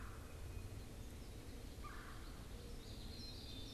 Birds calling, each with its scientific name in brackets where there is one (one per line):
Common Yellowthroat (Geothlypis trichas)
Red-bellied Woodpecker (Melanerpes carolinus)
Black-capped Chickadee (Poecile atricapillus)